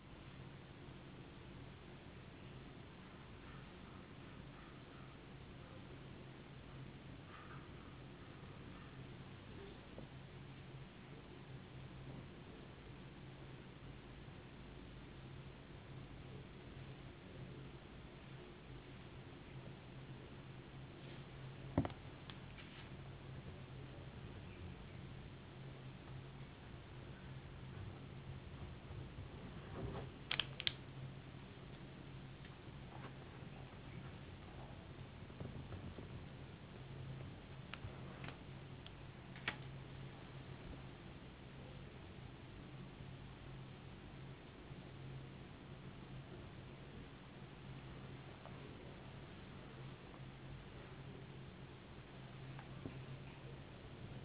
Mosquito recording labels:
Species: no mosquito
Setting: insect culture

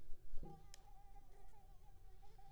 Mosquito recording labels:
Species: Anopheles squamosus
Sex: female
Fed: unfed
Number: one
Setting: cup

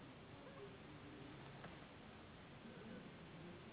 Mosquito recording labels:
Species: Anopheles gambiae s.s.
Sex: female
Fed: unfed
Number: one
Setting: insect culture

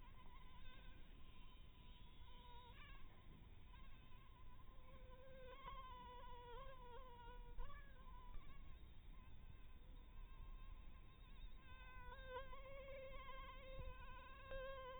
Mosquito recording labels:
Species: Anopheles harrisoni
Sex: female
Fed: blood-fed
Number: one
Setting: cup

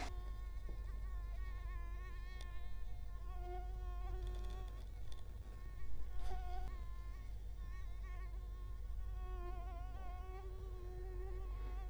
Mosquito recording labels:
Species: Culex quinquefasciatus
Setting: cup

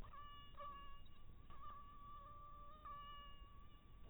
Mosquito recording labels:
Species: mosquito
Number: one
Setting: cup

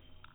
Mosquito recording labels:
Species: no mosquito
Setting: cup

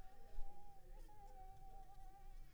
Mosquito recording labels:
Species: Anopheles squamosus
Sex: female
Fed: unfed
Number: one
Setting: cup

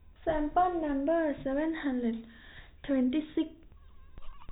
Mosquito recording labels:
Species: no mosquito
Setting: cup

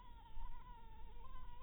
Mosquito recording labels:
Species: Anopheles maculatus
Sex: female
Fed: blood-fed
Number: one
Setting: cup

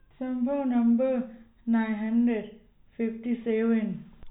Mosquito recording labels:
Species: no mosquito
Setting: cup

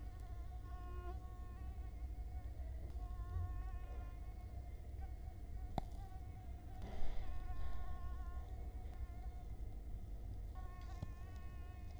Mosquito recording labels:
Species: Culex quinquefasciatus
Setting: cup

